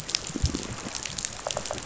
{"label": "biophony, rattle response", "recorder": "SoundTrap 500"}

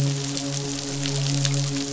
{"label": "biophony, midshipman", "recorder": "SoundTrap 500"}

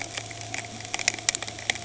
{"label": "anthrophony, boat engine", "recorder": "HydroMoth"}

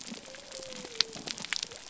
{"label": "biophony", "recorder": "SoundTrap 300"}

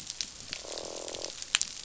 {"label": "biophony, croak", "recorder": "SoundTrap 500"}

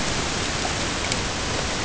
{"label": "ambient", "recorder": "HydroMoth"}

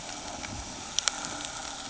{"label": "ambient", "recorder": "HydroMoth"}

